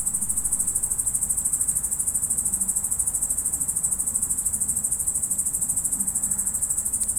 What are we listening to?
Tettigonia cantans, an orthopteran